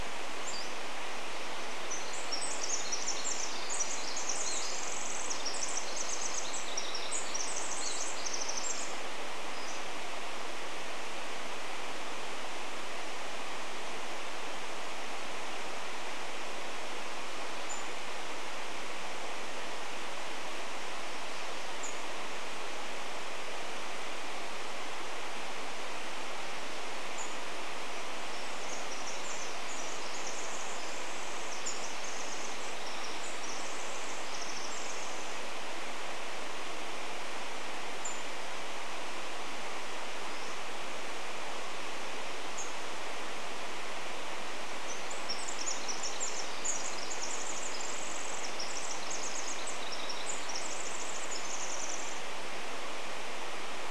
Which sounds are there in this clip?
Pacific-slope Flycatcher song, Pacific Wren song, Pacific-slope Flycatcher call